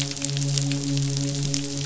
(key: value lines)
label: biophony, midshipman
recorder: SoundTrap 500